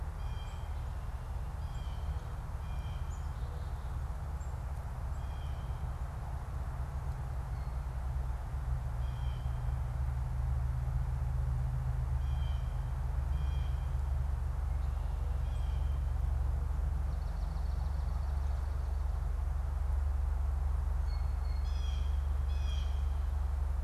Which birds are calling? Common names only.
Blue Jay, Black-capped Chickadee, Swamp Sparrow